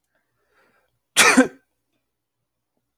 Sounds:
Sneeze